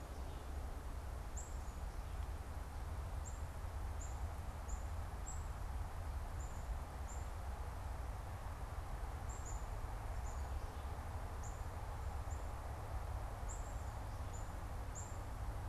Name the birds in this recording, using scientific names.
Poecile atricapillus